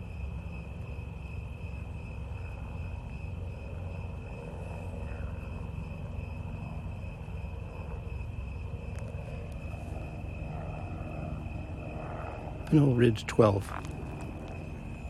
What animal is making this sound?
Oecanthus fultoni, an orthopteran